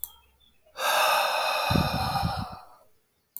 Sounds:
Sigh